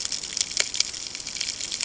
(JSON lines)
{"label": "ambient", "recorder": "HydroMoth"}